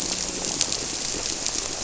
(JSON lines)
{"label": "biophony, grouper", "recorder": "SoundTrap 300"}